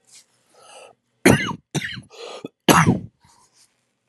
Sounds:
Cough